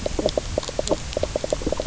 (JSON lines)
{"label": "biophony, knock croak", "recorder": "SoundTrap 300"}